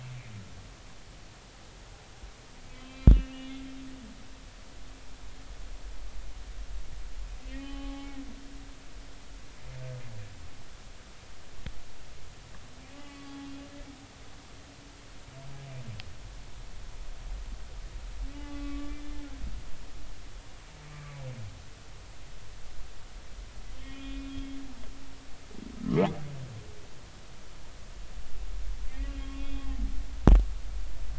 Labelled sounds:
2.7	3.6	humpback whale, 0.99 to 3.5 kHz
7.5	8.1	humpback whale, 0.80 to 3.1 kHz
12.9	13.5	humpback whale, 1.1 to 3.4 kHz
18.3	19.0	humpback whale, 1.1 to 2.9 kHz
20.9	21.2	humpback whale, 1.1 to 1.2 kHz
23.8	24.6	humpback whale, 2.4 to 3.3 kHz
28.9	29.7	humpback whale, 2.3 to 3.4 kHz

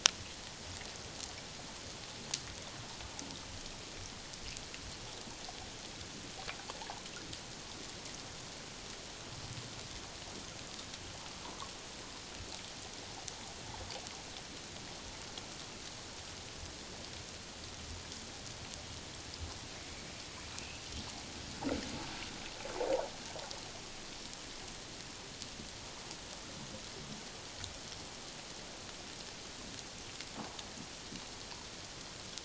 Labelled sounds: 11.4	11.7	water noise, 0.88 to 1.3 kHz
20.5	20.8	water noise, 2.4 to 2.8 kHz

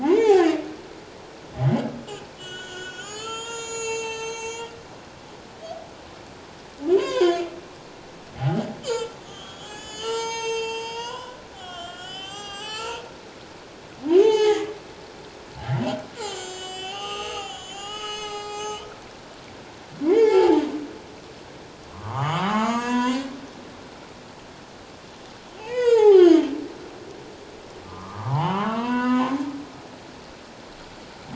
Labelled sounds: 0.0	0.5	humpback whale, 0.78 to 7.1 kHz
2.1	4.7	humpback whale, 0.84 to 8.0 kHz
7.0	7.4	humpback whale, 0.94 to 5.1 kHz
8.4	13.0	humpback whale, 0.78 to 8.0 kHz
14.1	14.7	humpback whale, 0.78 to 6.7 kHz
16.2	18.9	humpback whale, 0.78 to 7.7 kHz
20.0	20.6	humpback whale, 0.78 to 2.3 kHz
21.9	23.3	humpback whale, 0.78 to 7.8 kHz
25.6	26.5	humpback whale, 0.78 to 7.7 kHz
27.8	29.4	humpback whale, 0.78 to 3.2 kHz

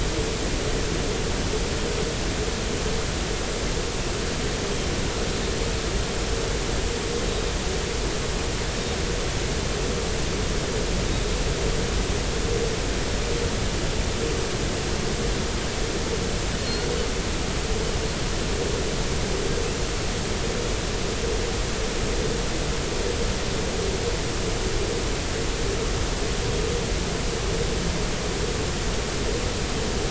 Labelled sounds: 16.6	16.9	Pacific white-sided dolphin, 4.2 to 4.5 kHz

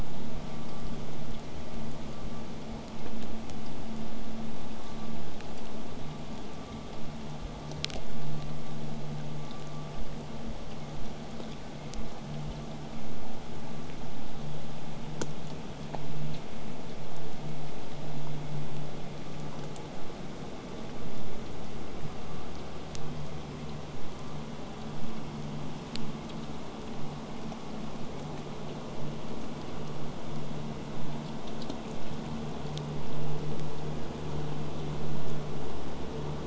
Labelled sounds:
22.9	27.9	vessel noise, 0 to 8.0 kHz

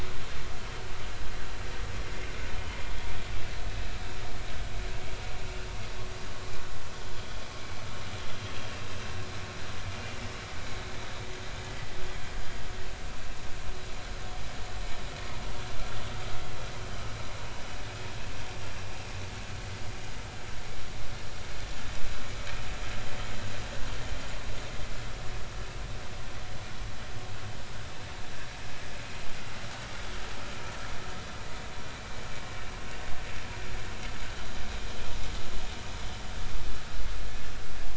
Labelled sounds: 0.6	0.8	vessel noise, 3.0 to 3.2 kHz

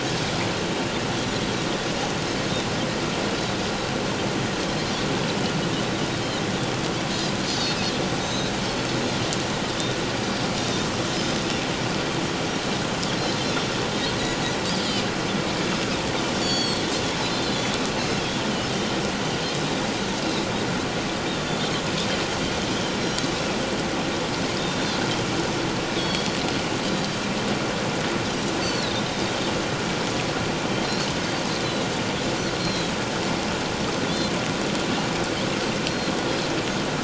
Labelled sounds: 7.5	8.5	Pacific white-sided dolphin, 3.7 to 6.4 kHz
10.6	10.9	Pacific white-sided dolphin, 3.6 to 3.7 kHz
13.9	14.1	Pacific white-sided dolphin, 3.6 to 3.9 kHz
16.4	16.8	Pacific white-sided dolphin, 3.2 to 8.0 kHz
17.5	17.7	Pacific white-sided dolphin, 3.3 to 3.5 kHz
18.7	19.0	Pacific white-sided dolphin, 3.0 to 3.2 kHz
23.0	23.5	Pacific white-sided dolphin, 5.4 to 6.4 kHz
24.6	25.0	Pacific white-sided dolphin, 3.4 to 3.7 kHz
26.0	26.3	Pacific white-sided dolphin, 3.2 to 4.5 kHz
28.6	29.0	Pacific white-sided dolphin, 3.5 to 4.7 kHz
31.6	31.9	Pacific white-sided dolphin, 3.7 to 4.1 kHz
32.6	32.9	Pacific white-sided dolphin, 3.8 to 4.3 kHz

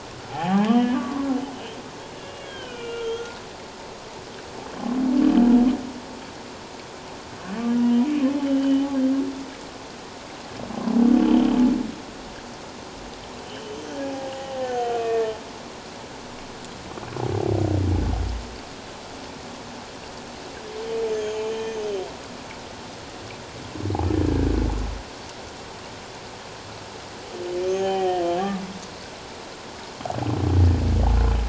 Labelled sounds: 0.3	1.3	humpback whale, 0.78 to 3.2 kHz
2.1	3.4	humpback whale, 1.3 to 3.4 kHz
8.5	8.9	humpback whale, 2.9 to 3.2 kHz
11.2	11.5	humpback whale, 2.9 to 3.3 kHz
13.4	15.3	humpback whale, 0.78 to 6.4 kHz
21.1	21.9	humpback whale, 2.3 to 7.2 kHz
27.6	28.2	humpback whale, 0.78 to 6.6 kHz

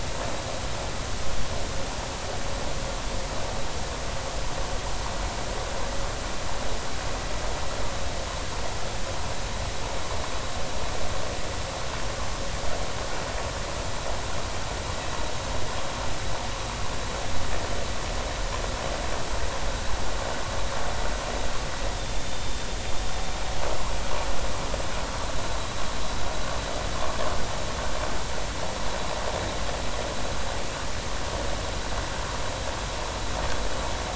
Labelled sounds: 22.2	22.5	vessel noise, 3.5 to 3.6 kHz

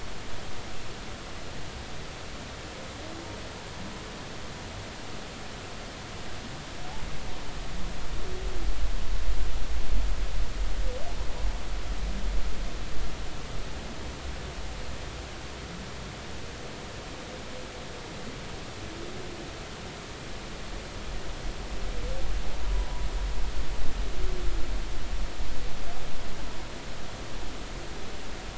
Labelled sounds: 22.6	22.9	humpback whale, 0.93 to 1.0 kHz

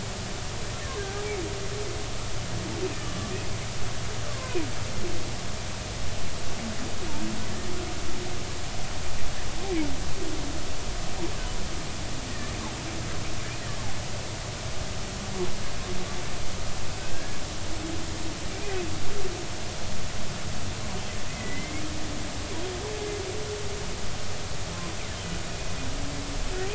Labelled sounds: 1.0	1.2	humpback whale, 1.5 to 1.7 kHz
3.0	3.3	humpback whale, 1.1 to 3.0 kHz
4.3	4.6	humpback whale, 0.93 to 1.2 kHz
12.3	12.5	humpback whale, 1.7 to 2.0 kHz
17.1	17.4	humpback whale, 1.5 to 1.8 kHz
21.3	21.8	humpback whale, 1.9 to 2.2 kHz

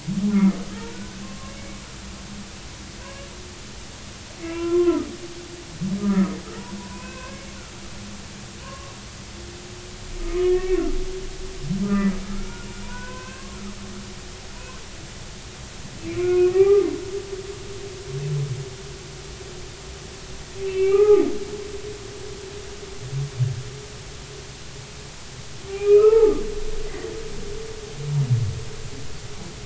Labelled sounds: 0.3	1.8	humpback whale, 1.0 to 2.3 kHz
3.0	3.3	humpback whale, 0.93 to 1.2 kHz
4.4	5.1	humpback whale, 0.93 to 2.8 kHz
6.0	7.5	humpback whale, 0.93 to 2.7 kHz
8.6	8.9	humpback whale, 0.93 to 1.2 kHz
10.2	10.8	humpback whale, 1.2 to 2.7 kHz
11.8	13.6	humpback whale, 0.93 to 2.8 kHz
16.0	16.9	humpback whale, 0.80 to 2.4 kHz
20.6	21.3	humpback whale, 0.80 to 2.8 kHz
25.7	26.4	humpback whale, 0.80 to 2.7 kHz
26.9	27.1	humpback whale, 1.8 to 2.1 kHz

